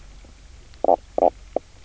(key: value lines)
label: biophony, knock croak
recorder: SoundTrap 300